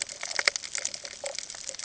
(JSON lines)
{"label": "ambient", "recorder": "HydroMoth"}